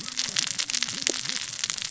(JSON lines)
{"label": "biophony, cascading saw", "recorder": "SoundTrap 600 or HydroMoth"}